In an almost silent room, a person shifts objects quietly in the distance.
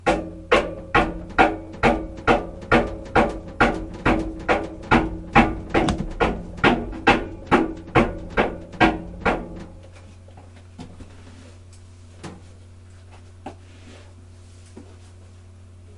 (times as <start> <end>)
9.7 16.0